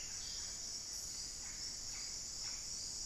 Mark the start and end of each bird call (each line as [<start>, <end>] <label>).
[0.00, 2.94] Yellow-rumped Cacique (Cacicus cela)